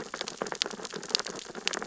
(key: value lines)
label: biophony, sea urchins (Echinidae)
recorder: SoundTrap 600 or HydroMoth